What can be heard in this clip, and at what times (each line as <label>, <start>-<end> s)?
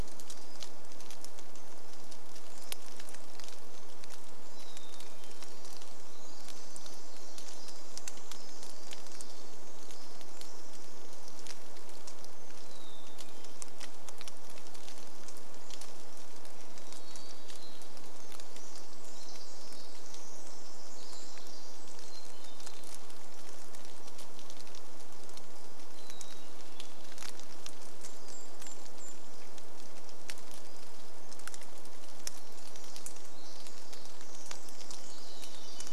Pacific Wren song, 0-2 s
rain, 0-36 s
Hermit Thrush song, 4-6 s
Pacific Wren song, 4-12 s
Hermit Thrush song, 12-14 s
Hermit Thrush song, 16-18 s
Varied Thrush song, 16-18 s
Pacific Wren song, 18-24 s
Hermit Thrush song, 22-24 s
Hermit Thrush song, 26-28 s
Golden-crowned Kinglet song, 28-30 s
Hermit Thrush call, 30-32 s
Pacific Wren song, 32-36 s
Hermit Thrush song, 34-36 s
Varied Thrush song, 34-36 s